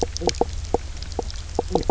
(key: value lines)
label: biophony, knock croak
recorder: SoundTrap 300